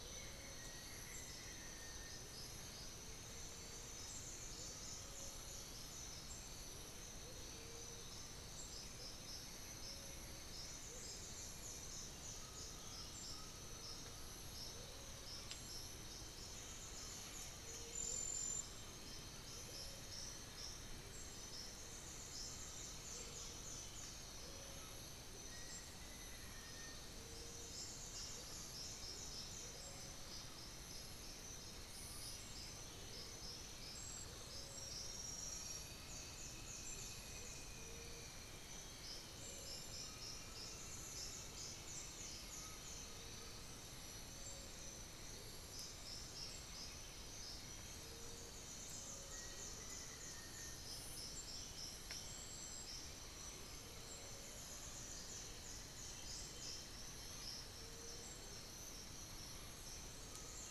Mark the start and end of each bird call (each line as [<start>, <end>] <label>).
[0.00, 1.60] Buff-breasted Wren (Cantorchilus leucotis)
[0.50, 2.30] Black-faced Antthrush (Formicarius analis)
[1.00, 5.10] Blue-gray Saltator (Saltator coerulescens)
[4.60, 6.40] Undulated Tinamou (Crypturellus undulatus)
[7.20, 15.10] Amazonian Motmot (Momotus momota)
[8.70, 11.10] White-winged Becard (Pachyramphus polychopterus)
[12.30, 25.20] Undulated Tinamou (Crypturellus undulatus)
[25.30, 27.00] Black-faced Antthrush (Formicarius analis)
[27.90, 28.80] unidentified bird
[29.40, 30.00] Amazonian Motmot (Momotus momota)
[31.80, 34.90] unidentified bird
[35.40, 42.90] Elegant Woodcreeper (Xiphorhynchus elegans)
[37.30, 37.60] Amazonian Motmot (Momotus momota)
[38.30, 40.20] Chestnut-winged Foliage-gleaner (Dendroma erythroptera)
[39.80, 44.10] Undulated Tinamou (Crypturellus undulatus)
[41.40, 60.71] unidentified bird
[49.00, 54.20] Undulated Tinamou (Crypturellus undulatus)
[54.50, 58.90] Cinnamon-throated Woodcreeper (Dendrexetastes rufigula)
[59.50, 60.71] Undulated Tinamou (Crypturellus undulatus)